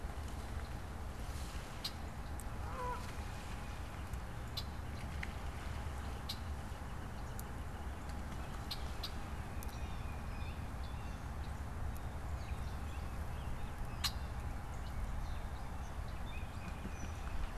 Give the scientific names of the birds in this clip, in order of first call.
Agelaius phoeniceus, Branta canadensis, Baeolophus bicolor